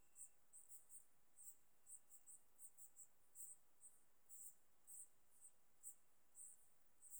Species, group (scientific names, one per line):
Eupholidoptera schmidti
Orthoptera